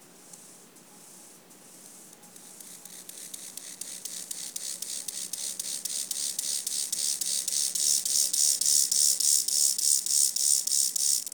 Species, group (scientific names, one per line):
Chorthippus mollis
Orthoptera